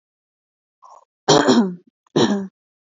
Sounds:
Throat clearing